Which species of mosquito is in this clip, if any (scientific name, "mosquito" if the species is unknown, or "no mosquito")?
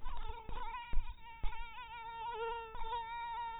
mosquito